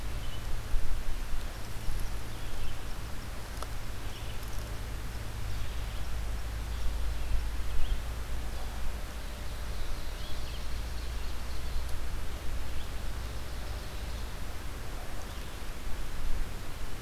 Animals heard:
Ovenbird (Seiurus aurocapilla)
Red-eyed Vireo (Vireo olivaceus)

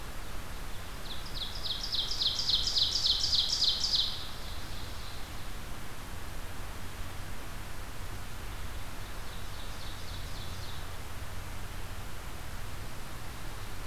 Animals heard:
Ovenbird (Seiurus aurocapilla)

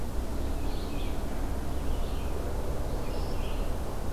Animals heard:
Red-eyed Vireo (Vireo olivaceus)

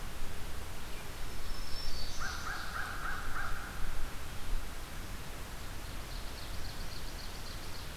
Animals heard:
Ovenbird (Seiurus aurocapilla)
Black-throated Green Warbler (Setophaga virens)
American Crow (Corvus brachyrhynchos)

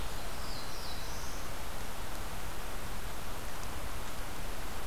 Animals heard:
Black-throated Blue Warbler (Setophaga caerulescens)

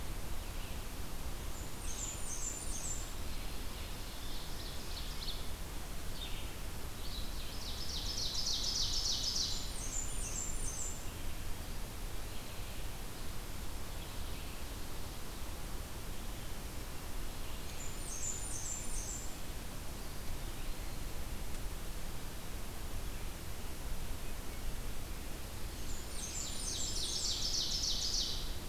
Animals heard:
Red-eyed Vireo (Vireo olivaceus)
Ovenbird (Seiurus aurocapilla)
Eastern Wood-Pewee (Contopus virens)
Blackburnian Warbler (Setophaga fusca)

